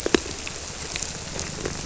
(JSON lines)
{"label": "biophony", "recorder": "SoundTrap 300"}